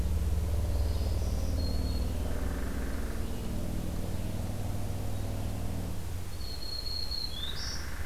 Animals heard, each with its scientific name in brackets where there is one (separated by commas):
Black-throated Green Warbler (Setophaga virens), Red-eyed Vireo (Vireo olivaceus), Hairy Woodpecker (Dryobates villosus)